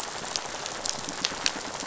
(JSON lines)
{"label": "biophony, rattle", "recorder": "SoundTrap 500"}
{"label": "biophony", "recorder": "SoundTrap 500"}